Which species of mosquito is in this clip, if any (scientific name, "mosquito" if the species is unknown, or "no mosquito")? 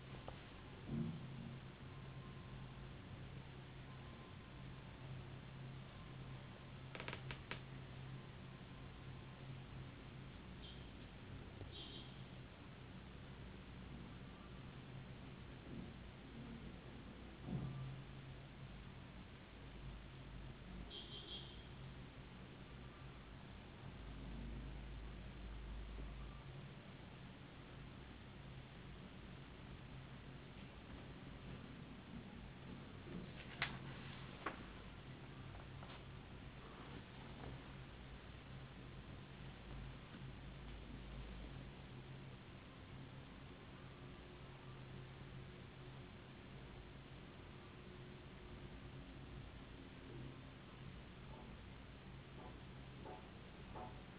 no mosquito